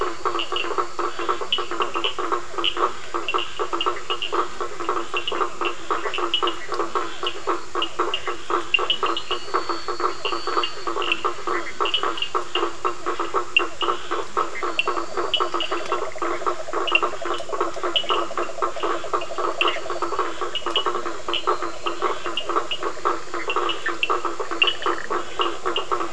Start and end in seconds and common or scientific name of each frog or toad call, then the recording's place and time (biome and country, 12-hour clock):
0.0	26.1	blacksmith tree frog
0.0	26.1	Leptodactylus latrans
0.0	26.1	Cochran's lime tree frog
13.7	26.1	yellow cururu toad
24.0	26.1	Scinax perereca
Atlantic Forest, Brazil, 8:45pm